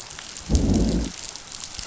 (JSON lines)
{"label": "biophony, growl", "recorder": "SoundTrap 500"}